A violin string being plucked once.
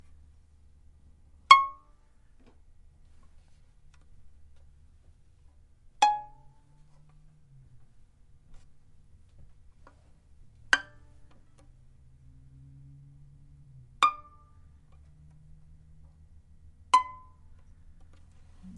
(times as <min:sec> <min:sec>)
0:01.5 0:01.8, 0:06.0 0:06.2, 0:10.7 0:10.8, 0:14.0 0:14.2, 0:16.9 0:17.0